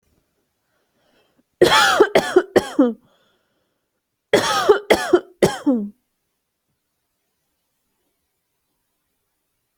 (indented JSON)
{
  "expert_labels": [
    {
      "quality": "good",
      "cough_type": "dry",
      "dyspnea": false,
      "wheezing": false,
      "stridor": false,
      "choking": false,
      "congestion": false,
      "nothing": true,
      "diagnosis": "healthy cough",
      "severity": "pseudocough/healthy cough"
    }
  ],
  "age": 29,
  "gender": "female",
  "respiratory_condition": false,
  "fever_muscle_pain": false,
  "status": "healthy"
}